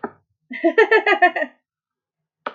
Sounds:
Laughter